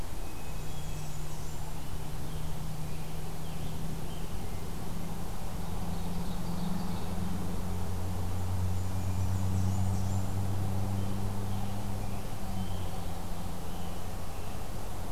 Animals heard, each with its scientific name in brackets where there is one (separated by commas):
Hermit Thrush (Catharus guttatus), Blackburnian Warbler (Setophaga fusca), Scarlet Tanager (Piranga olivacea), Ovenbird (Seiurus aurocapilla)